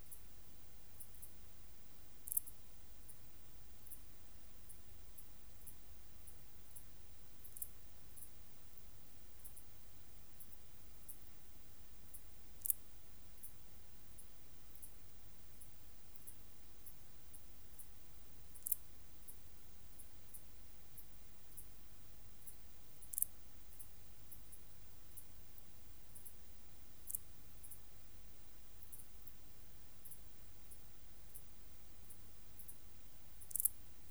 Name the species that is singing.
Parasteropleurus martorellii